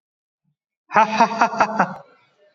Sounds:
Laughter